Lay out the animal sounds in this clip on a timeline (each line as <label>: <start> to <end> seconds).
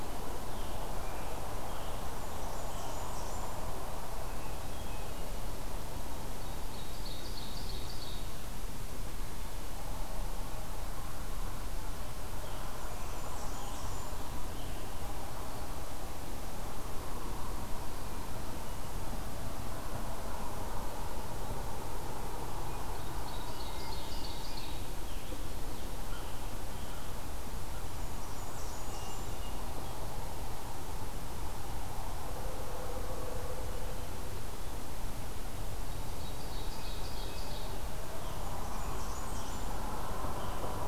Scarlet Tanager (Piranga olivacea): 0.0 to 3.1 seconds
Blackburnian Warbler (Setophaga fusca): 2.2 to 3.7 seconds
Hermit Thrush (Catharus guttatus): 4.2 to 5.3 seconds
Ovenbird (Seiurus aurocapilla): 6.5 to 8.4 seconds
Scarlet Tanager (Piranga olivacea): 12.3 to 15.1 seconds
Blackburnian Warbler (Setophaga fusca): 12.7 to 14.2 seconds
Ovenbird (Seiurus aurocapilla): 23.0 to 24.9 seconds
Hermit Thrush (Catharus guttatus): 23.5 to 24.6 seconds
Scarlet Tanager (Piranga olivacea): 23.9 to 27.2 seconds
Blackburnian Warbler (Setophaga fusca): 27.9 to 29.4 seconds
Hermit Thrush (Catharus guttatus): 28.9 to 30.0 seconds
Ovenbird (Seiurus aurocapilla): 36.0 to 37.8 seconds
Hermit Thrush (Catharus guttatus): 36.7 to 37.6 seconds
Scarlet Tanager (Piranga olivacea): 37.8 to 40.9 seconds
Blackburnian Warbler (Setophaga fusca): 38.2 to 39.8 seconds